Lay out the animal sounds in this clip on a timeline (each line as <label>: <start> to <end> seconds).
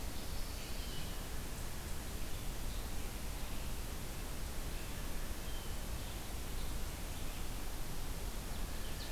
Chestnut-sided Warbler (Setophaga pensylvanica): 0.0 to 1.1 seconds